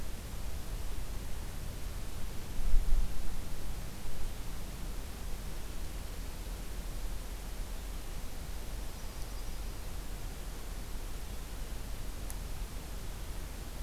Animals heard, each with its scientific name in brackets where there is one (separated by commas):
Yellow-rumped Warbler (Setophaga coronata)